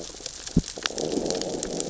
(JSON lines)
{"label": "biophony, growl", "recorder": "SoundTrap 600 or HydroMoth"}